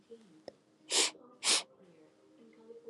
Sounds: Sniff